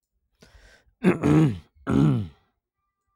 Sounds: Throat clearing